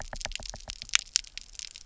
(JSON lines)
{"label": "biophony, knock", "recorder": "SoundTrap 300"}